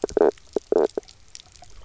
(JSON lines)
{"label": "biophony, knock croak", "recorder": "SoundTrap 300"}